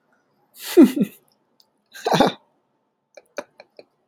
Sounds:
Laughter